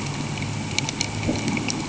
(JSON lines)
{"label": "anthrophony, boat engine", "recorder": "HydroMoth"}